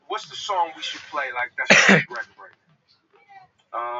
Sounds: Cough